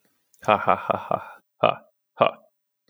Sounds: Laughter